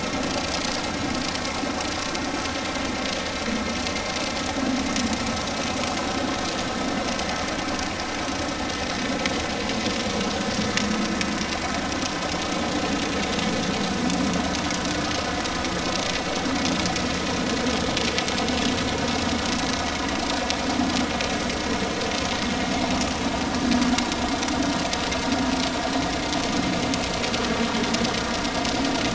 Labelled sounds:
7.2	7.4	vessel noise, 1.9 to 2.1 kHz

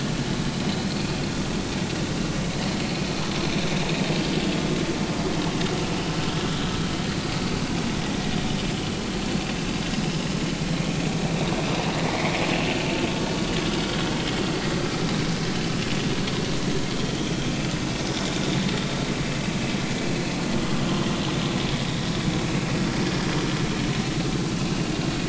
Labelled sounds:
4.4	4.7	vessel noise, 3.2 to 3.5 kHz
20.8	21.1	vessel noise, 3.0 to 3.3 kHz

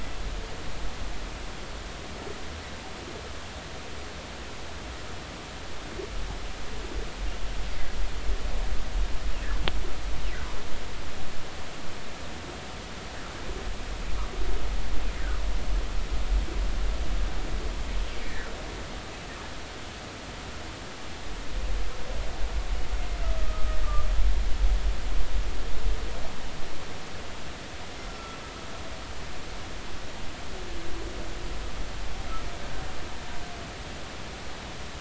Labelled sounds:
18.2	18.5	humpback whale, 1.7 to 2.0 kHz
23.2	23.8	humpback whale, 1.2 to 1.3 kHz
28.1	28.4	humpback whale, 1.3 to 1.4 kHz

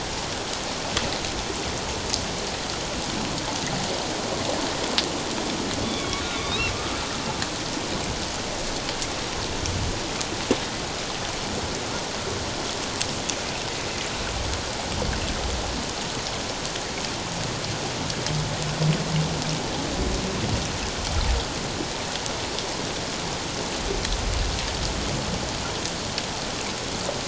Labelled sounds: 5.8	6.7	humpback whale, 1.1 to 4.2 kHz

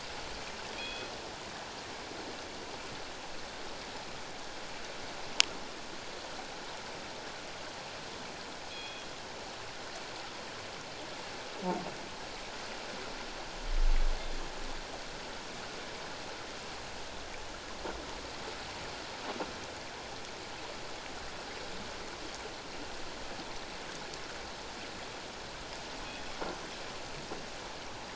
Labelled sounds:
0.7	1.1	killer whale, northern resident, G clan, call N24ii, 2.3 to 3.5 kHz
8.7	9.1	killer whale, northern resident, G clan, call N24ii, 2.4 to 4.2 kHz
26.0	26.4	killer whale, northern resident, G clan, call N24ii, 3.3 to 3.4 kHz

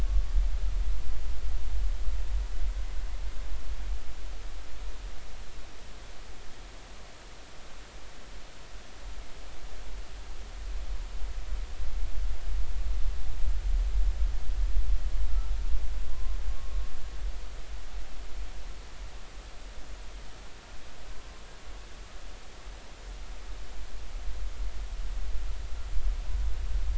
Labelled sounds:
0.1	0.3	humpback whale, 1.1 to 1.2 kHz
16.1	16.8	humpback whale, 0.96 to 1.2 kHz

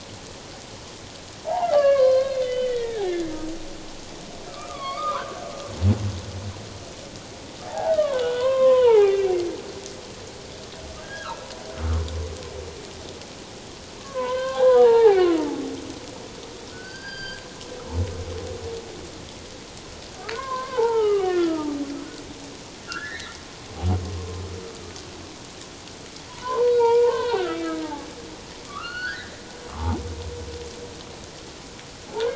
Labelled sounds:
1.4	3.0	humpback whale, 0.78 to 4.3 kHz
4.5	5.5	humpback whale, 0.94 to 5.0 kHz
7.6	9.3	humpback whale, 0.78 to 3.2 kHz
11.0	11.5	humpback whale, 0.84 to 1.7 kHz
14.0	15.4	humpback whale, 0.78 to 3.2 kHz
16.7	17.4	humpback whale, 1.3 to 4.9 kHz
20.3	21.8	humpback whale, 0.81 to 3.2 kHz
22.9	23.4	humpback whale, 1.3 to 2.1 kHz
26.3	28.1	humpback whale, 0.81 to 4.2 kHz
28.6	29.3	humpback whale, 1.1 to 4.5 kHz
29.7	30.0	humpback whale, 0.78 to 1.3 kHz

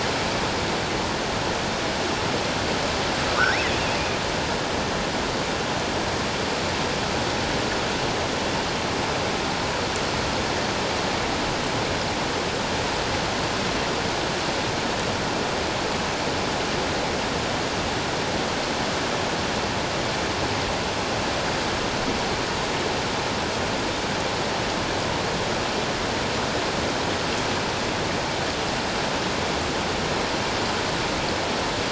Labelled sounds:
3.3	3.7	killer whale, offshore, 1.1 to 5.5 kHz

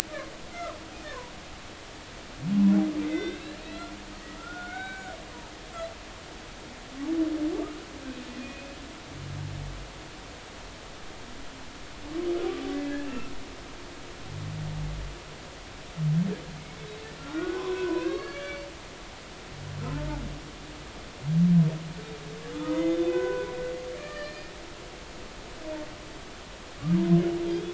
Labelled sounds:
0.5	1.3	humpback whale, 0.90 to 1.5 kHz
3.0	5.2	humpback whale, 1.2 to 4.2 kHz
8.4	8.8	humpback whale, 2.4 to 2.6 kHz
13.0	13.3	humpback whale, 1.3 to 2.8 kHz
17.2	18.6	humpback whale, 0.93 to 4.5 kHz
22.5	23.5	humpback whale, 0.96 to 6.7 kHz
24.0	24.5	humpback whale, 1.1 to 4.3 kHz
27.5	27.7	humpback whale, 3.2 to 3.5 kHz

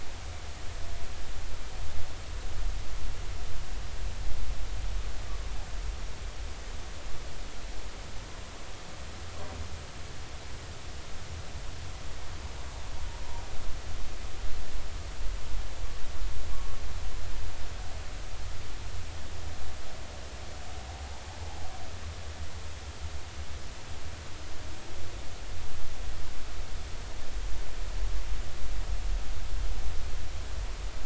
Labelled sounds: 16.5	16.8	humpback whale, 1.0 to 1.2 kHz

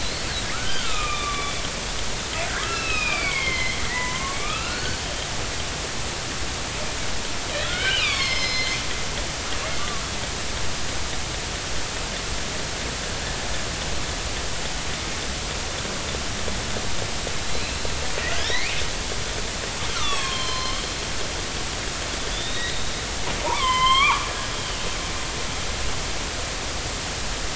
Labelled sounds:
0.0	0.2	killer whale, northern resident, 3.9 to 4.5 kHz
0.5	1.6	killer whale, northern resident, 1.1 to 3.6 kHz
2.6	5.4	killer whale, northern resident, 0.90 to 5.2 kHz
7.6	8.8	killer whale, northern resident, 1.0 to 6.2 kHz
9.8	10.0	killer whale, northern resident, 1.1 to 1.2 kHz
17.5	17.7	killer whale, northern resident, 3.9 to 4.2 kHz
18.3	18.8	killer whale, northern resident, 1.3 to 4.3 kHz
19.9	20.8	killer whale, northern resident, 0.99 to 4.3 kHz
22.3	22.8	killer whale, northern resident, 3.3 to 3.9 kHz
23.5	24.3	killer whale, northern resident, 0.83 to 4.4 kHz

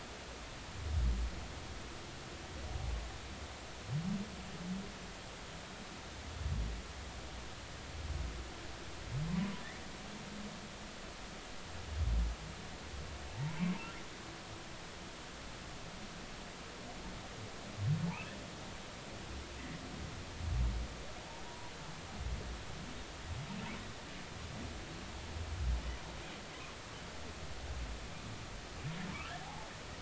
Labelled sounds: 13.3	13.6	humpback whale, 0.80 to 1.1 kHz
21.5	21.7	humpback whale, 0.93 to 0.99 kHz
29.4	29.7	humpback whale, 0.80 to 1.1 kHz

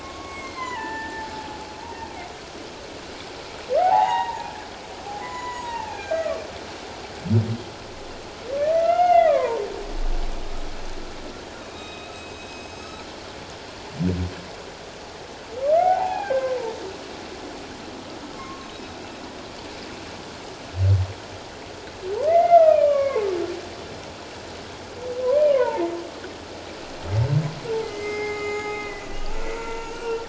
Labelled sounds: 0.0	1.3	humpback whale, 0.81 to 7.7 kHz
3.8	4.4	humpback whale, 0.78 to 6.8 kHz
5.2	6.4	humpback whale, 0.78 to 7.1 kHz
8.7	9.6	humpback whale, 0.88 to 2.9 kHz
11.6	13.0	humpback whale, 2.3 to 7.8 kHz
15.7	16.8	humpback whale, 0.78 to 2.6 kHz
18.3	18.9	humpback whale, 1.0 to 5.2 kHz
22.3	23.3	humpback whale, 0.81 to 2.7 kHz
25.5	25.9	humpback whale, 0.84 to 1.2 kHz
27.8	30.2	humpback whale, 0.78 to 7.1 kHz

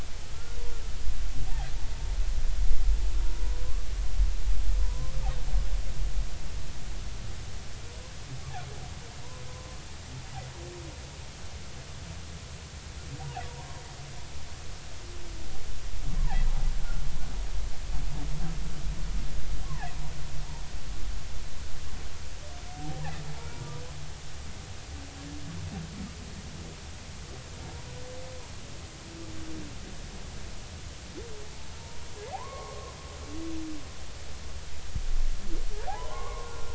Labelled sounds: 3.2	3.9	humpback whale, 0.90 to 1.2 kHz
4.8	5.1	humpback whale, 0.93 to 1.1 kHz
13.5	13.8	humpback whale, 0.90 to 1.1 kHz
16.2	17.0	humpback whale, 0.80 to 1.6 kHz
19.6	19.9	humpback whale, 0.80 to 1.2 kHz
22.7	23.0	humpback whale, 0.80 to 0.93 kHz
23.4	23.6	humpback whale, 2.2 to 2.4 kHz
32.3	32.9	humpback whale, 0.80 to 2.2 kHz
35.9	36.7	humpback whale, 0.80 to 2.3 kHz

